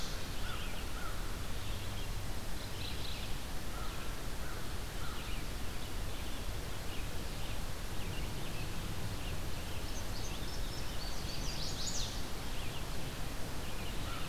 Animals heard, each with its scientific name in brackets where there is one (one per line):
American Crow (Corvus brachyrhynchos)
Red-eyed Vireo (Vireo olivaceus)
Mourning Warbler (Geothlypis philadelphia)
Indigo Bunting (Passerina cyanea)
Chestnut-sided Warbler (Setophaga pensylvanica)